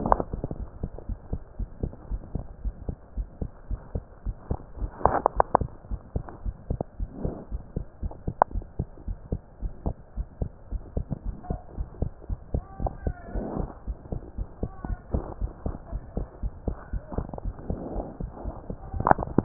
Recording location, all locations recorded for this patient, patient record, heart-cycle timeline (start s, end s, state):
pulmonary valve (PV)
aortic valve (AV)+pulmonary valve (PV)+tricuspid valve (TV)+mitral valve (MV)
#Age: Child
#Sex: Male
#Height: 116.0 cm
#Weight: 20.5 kg
#Pregnancy status: False
#Murmur: Absent
#Murmur locations: nan
#Most audible location: nan
#Systolic murmur timing: nan
#Systolic murmur shape: nan
#Systolic murmur grading: nan
#Systolic murmur pitch: nan
#Systolic murmur quality: nan
#Diastolic murmur timing: nan
#Diastolic murmur shape: nan
#Diastolic murmur grading: nan
#Diastolic murmur pitch: nan
#Diastolic murmur quality: nan
#Outcome: Normal
#Campaign: 2015 screening campaign
0.00	0.80	unannotated
0.80	0.90	S2
0.90	1.08	diastole
1.08	1.18	S1
1.18	1.30	systole
1.30	1.40	S2
1.40	1.58	diastole
1.58	1.68	S1
1.68	1.80	systole
1.80	1.94	S2
1.94	2.10	diastole
2.10	2.22	S1
2.22	2.32	systole
2.32	2.46	S2
2.46	2.62	diastole
2.62	2.74	S1
2.74	2.86	systole
2.86	2.98	S2
2.98	3.16	diastole
3.16	3.28	S1
3.28	3.38	systole
3.38	3.52	S2
3.52	3.70	diastole
3.70	3.80	S1
3.80	3.92	systole
3.92	4.06	S2
4.06	4.26	diastole
4.26	4.36	S1
4.36	4.48	systole
4.48	4.58	S2
4.58	4.78	diastole
4.78	4.90	S1
4.90	5.02	systole
5.02	5.18	S2
5.18	5.34	diastole
5.34	5.46	S1
5.46	5.62	systole
5.62	5.72	S2
5.72	5.90	diastole
5.90	6.00	S1
6.00	6.12	systole
6.12	6.26	S2
6.26	6.44	diastole
6.44	6.56	S1
6.56	6.68	systole
6.68	6.82	S2
6.82	7.00	diastole
7.00	7.10	S1
7.10	7.20	systole
7.20	7.36	S2
7.36	7.52	diastole
7.52	7.62	S1
7.62	7.74	systole
7.74	7.86	S2
7.86	8.02	diastole
8.02	8.12	S1
8.12	8.26	systole
8.26	8.36	S2
8.36	8.54	diastole
8.54	8.64	S1
8.64	8.76	systole
8.76	8.90	S2
8.90	9.08	diastole
9.08	9.18	S1
9.18	9.30	systole
9.30	9.40	S2
9.40	9.62	diastole
9.62	9.72	S1
9.72	9.84	systole
9.84	9.98	S2
9.98	10.18	diastole
10.18	10.28	S1
10.28	10.40	systole
10.40	10.52	S2
10.52	10.72	diastole
10.72	10.82	S1
10.82	10.94	systole
10.94	11.08	S2
11.08	11.26	diastole
11.26	11.36	S1
11.36	11.48	systole
11.48	11.60	S2
11.60	11.78	diastole
11.78	11.88	S1
11.88	12.00	systole
12.00	12.12	S2
12.12	12.30	diastole
12.30	12.40	S1
12.40	12.52	systole
12.52	12.62	S2
12.62	12.78	diastole
12.78	12.92	S1
12.92	13.04	systole
13.04	13.14	S2
13.14	13.32	diastole
13.32	13.46	S1
13.46	13.56	systole
13.56	13.70	S2
13.70	13.88	diastole
13.88	13.98	S1
13.98	14.10	systole
14.10	14.24	S2
14.24	14.38	diastole
14.38	14.48	S1
14.48	14.60	systole
14.60	14.70	S2
14.70	14.88	diastole
14.88	15.00	S1
15.00	15.12	systole
15.12	15.26	S2
15.26	15.40	diastole
15.40	15.52	S1
15.52	15.64	systole
15.64	15.76	S2
15.76	15.92	diastole
15.92	16.02	S1
16.02	16.14	systole
16.14	16.28	S2
16.28	16.42	diastole
16.42	16.54	S1
16.54	16.66	systole
16.66	16.78	S2
16.78	16.94	diastole
16.94	17.04	S1
17.04	17.12	systole
17.12	17.26	S2
17.26	17.44	diastole
17.44	17.56	S1
17.56	17.68	systole
17.68	17.78	S2
17.78	17.92	diastole
17.92	18.06	S1
18.06	18.20	systole
18.20	18.32	S2
18.32	18.46	diastole
18.46	18.56	S1
18.56	18.70	systole
18.70	18.78	S2
18.78	18.94	diastole
18.94	19.44	unannotated